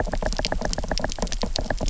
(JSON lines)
{"label": "biophony, knock", "recorder": "SoundTrap 300"}